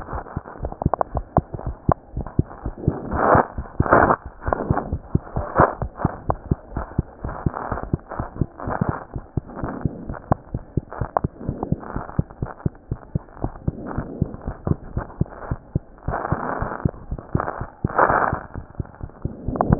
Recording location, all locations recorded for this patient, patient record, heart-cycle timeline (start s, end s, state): mitral valve (MV)
aortic valve (AV)+pulmonary valve (PV)+tricuspid valve (TV)+mitral valve (MV)
#Age: Child
#Sex: Female
#Height: 100.0 cm
#Weight: 11.5 kg
#Pregnancy status: False
#Murmur: Absent
#Murmur locations: nan
#Most audible location: nan
#Systolic murmur timing: nan
#Systolic murmur shape: nan
#Systolic murmur grading: nan
#Systolic murmur pitch: nan
#Systolic murmur quality: nan
#Diastolic murmur timing: nan
#Diastolic murmur shape: nan
#Diastolic murmur grading: nan
#Diastolic murmur pitch: nan
#Diastolic murmur quality: nan
#Outcome: Normal
#Campaign: 2015 screening campaign
0.00	11.93	unannotated
11.93	12.03	S1
12.03	12.15	systole
12.15	12.26	S2
12.26	12.40	diastole
12.40	12.50	S1
12.50	12.62	systole
12.62	12.76	S2
12.76	12.90	diastole
12.90	12.96	S1
12.96	13.11	systole
13.11	13.20	S2
13.20	13.41	diastole
13.41	13.51	S1
13.51	13.66	systole
13.66	13.74	S2
13.74	13.95	diastole
13.95	14.06	S1
14.06	14.20	systole
14.20	14.28	S2
14.28	14.46	diastole
14.46	14.54	S1
14.54	14.68	systole
14.68	14.80	S2
14.80	14.95	diastole
14.95	15.06	S1
15.06	15.18	systole
15.18	15.27	S2
15.27	15.48	diastole
15.48	15.60	S1
15.60	15.72	systole
15.72	15.86	S2
15.86	19.79	unannotated